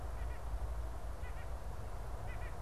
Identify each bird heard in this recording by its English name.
White-breasted Nuthatch